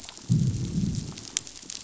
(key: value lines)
label: biophony, growl
recorder: SoundTrap 500